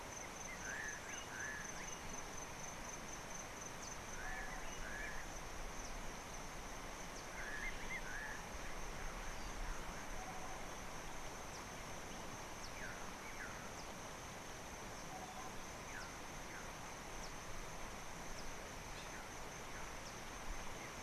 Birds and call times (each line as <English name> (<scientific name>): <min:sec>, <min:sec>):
Slate-colored Boubou (Laniarius funebris): 0:01.5
Tropical Boubou (Laniarius major): 0:10.4, 0:15.3